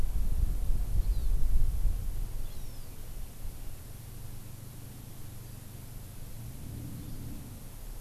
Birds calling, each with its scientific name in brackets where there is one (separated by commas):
Hawaii Amakihi (Chlorodrepanis virens)